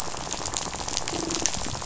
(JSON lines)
{"label": "biophony, rattle", "recorder": "SoundTrap 500"}